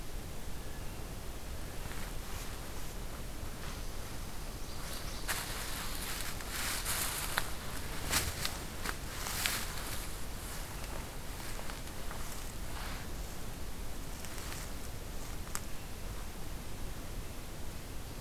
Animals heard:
forest ambience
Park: Katahdin Woods and Waters National Monument